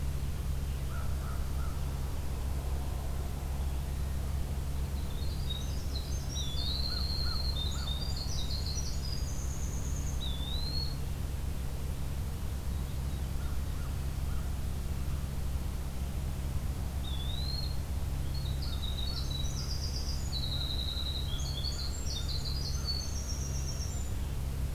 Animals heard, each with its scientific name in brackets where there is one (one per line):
Eastern Wood-Pewee (Contopus virens)
Veery (Catharus fuscescens)
Winter Wren (Troglodytes hiemalis)
American Crow (Corvus brachyrhynchos)